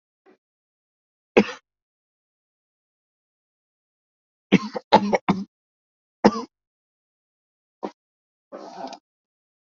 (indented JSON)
{
  "expert_labels": [
    {
      "quality": "good",
      "cough_type": "wet",
      "dyspnea": false,
      "wheezing": false,
      "stridor": false,
      "choking": false,
      "congestion": false,
      "nothing": true,
      "diagnosis": "lower respiratory tract infection",
      "severity": "mild"
    }
  ],
  "age": 97,
  "gender": "male",
  "respiratory_condition": false,
  "fever_muscle_pain": false,
  "status": "symptomatic"
}